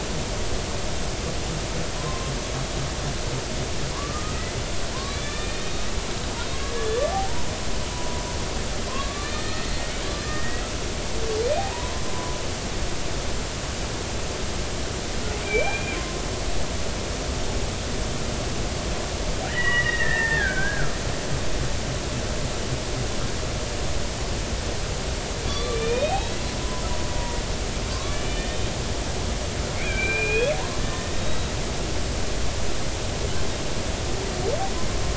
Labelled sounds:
2.0	2.3	killer whale, Bigg's (transient), 0.96 to 1.1 kHz
4.9	5.9	killer whale, Bigg's (transient), 0.96 to 3.9 kHz
6.5	7.0	killer whale, Bigg's (transient), 1.6 to 3.5 kHz
7.9	9.8	killer whale, Bigg's (transient), 0.93 to 4.4 kHz
10.2	10.7	killer whale, Bigg's (transient), 1.8 to 2.0 kHz
11.5	12.4	killer whale, Bigg's (transient), 0.80 to 2.5 kHz
15.4	16.0	killer whale, Bigg's (transient), 2.2 to 2.5 kHz
19.5	21.0	killer whale, Bigg's (transient), 0.80 to 3.1 kHz
25.5	26.3	killer whale, Bigg's (transient), 1.1 to 3.8 kHz
27.9	28.8	killer whale, Bigg's (transient), 1.0 to 3.2 kHz
29.8	31.5	killer whale, Bigg's (transient), 1.5 to 3.9 kHz

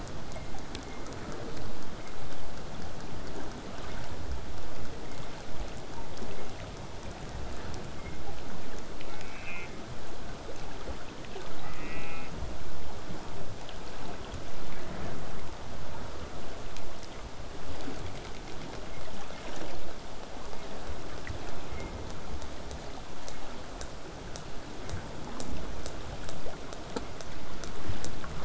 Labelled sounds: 9.0	9.7	killer whale, southern resident, J pod, call S04, 1.3 to 3.1 kHz
11.6	12.3	killer whale, southern resident, J pod, call S04, 0.69 to 2.9 kHz

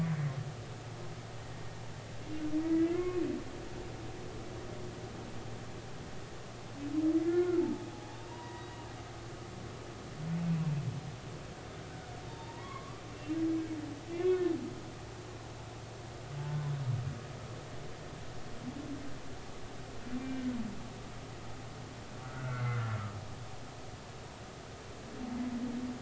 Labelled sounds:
2.7	3.2	humpback whale, 1.0 to 2.2 kHz
7.1	7.6	humpback whale, 1.3 to 2.2 kHz
8.3	8.7	humpback whale, 0.90 to 2.0 kHz
10.3	10.6	humpback whale, 2.4 to 2.7 kHz
12.3	13.4	humpback whale, 0.86 to 3.7 kHz
14.1	14.5	humpback whale, 2.0 to 2.2 kHz
20.2	20.4	humpback whale, 2.3 to 2.4 kHz
22.2	23.0	humpback whale, 1.2 to 2.3 kHz

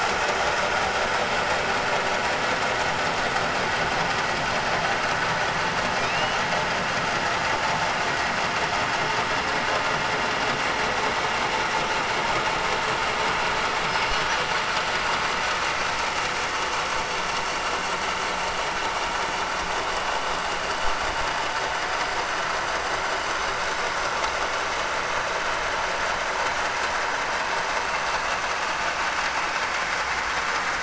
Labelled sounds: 5.9	6.4	killer whale, 2.4 to 3.9 kHz

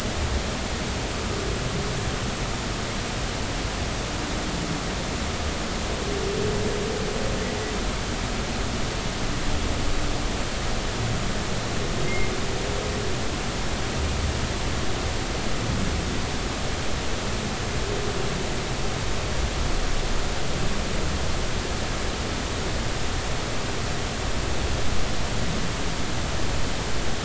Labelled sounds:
1.1	1.4	humpback whale, 1.1 to 1.3 kHz
12.1	12.3	humpback whale, 2.0 to 2.3 kHz

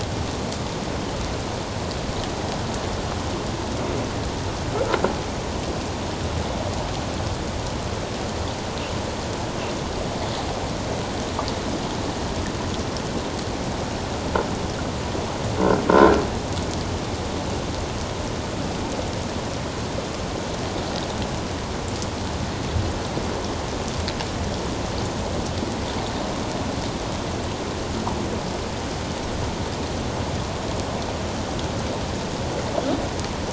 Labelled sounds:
15.9	16.2	croaking sound likely from a nearby submerged object, 1.3 to 1.5 kHz

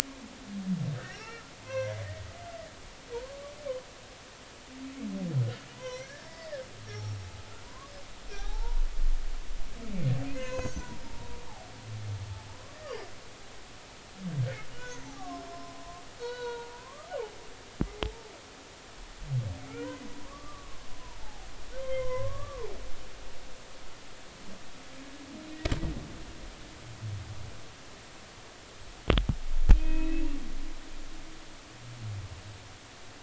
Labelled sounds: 1.0	2.2	humpback whale, 1.2 to 5.7 kHz
3.2	3.5	humpback whale, 0.99 to 1.2 kHz
5.7	7.9	humpback whale, 0.93 to 6.0 kHz
8.3	8.8	humpback whale, 0.80 to 1.7 kHz
10.2	11.4	humpback whale, 0.86 to 6.8 kHz
14.7	15.8	humpback whale, 0.80 to 1.6 kHz
16.2	17.1	humpback whale, 0.90 to 4.5 kHz
19.6	21.5	humpback whale, 0.80 to 2.4 kHz
21.8	22.7	humpback whale, 0.80 to 3.2 kHz
29.7	30.2	humpback whale, 2.4 to 2.7 kHz

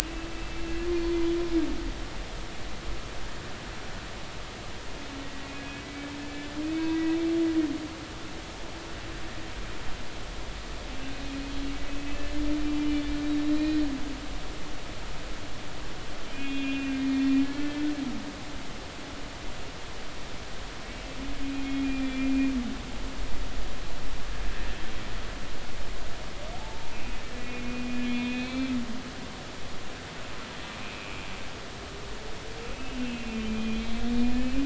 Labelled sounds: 0.0	0.6	humpback whale, 2.5 to 2.7 kHz
5.5	6.5	humpback whale, 1.7 to 2.6 kHz
6.9	7.2	humpback whale, 1.9 to 2.0 kHz
13.4	13.9	humpback whale, 1.8 to 4.3 kHz
16.3	17.9	humpback whale, 1.6 to 4.4 kHz
21.4	22.3	humpback whale, 2.3 to 3.5 kHz
26.5	28.7	humpback whale, 0.80 to 4.3 kHz
30.8	31.2	humpback whale, 2.3 to 2.7 kHz
32.8	34.6	humpback whale, 2.2 to 2.9 kHz

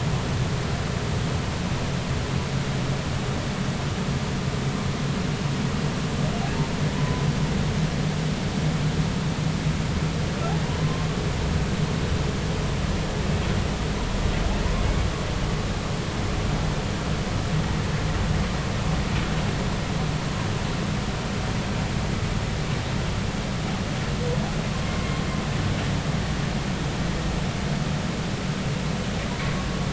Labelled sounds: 6.9	7.2	humpback whale, 0.96 to 1.1 kHz
10.8	11.1	humpback whale, 0.99 to 1.1 kHz
24.9	25.2	humpback whale, 0.99 to 1.1 kHz

